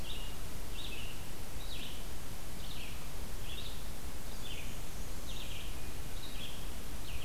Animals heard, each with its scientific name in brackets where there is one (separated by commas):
Black-and-white Warbler (Mniotilta varia), Red-eyed Vireo (Vireo olivaceus)